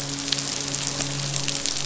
{"label": "biophony, midshipman", "recorder": "SoundTrap 500"}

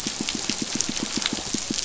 {"label": "biophony, pulse", "recorder": "SoundTrap 500"}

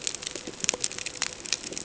{"label": "ambient", "recorder": "HydroMoth"}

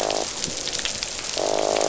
{"label": "biophony, croak", "recorder": "SoundTrap 500"}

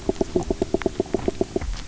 {"label": "biophony, knock", "recorder": "SoundTrap 300"}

